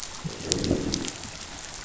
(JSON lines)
{"label": "biophony, growl", "recorder": "SoundTrap 500"}